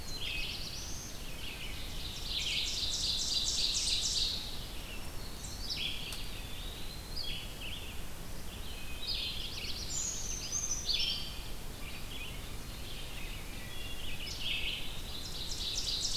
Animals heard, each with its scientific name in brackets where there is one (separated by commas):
Red-eyed Vireo (Vireo olivaceus), Black-throated Green Warbler (Setophaga virens), Black-capped Chickadee (Poecile atricapillus), Wood Thrush (Hylocichla mustelina), Black-throated Blue Warbler (Setophaga caerulescens), Ovenbird (Seiurus aurocapilla), Brown Creeper (Certhia americana), Eastern Wood-Pewee (Contopus virens)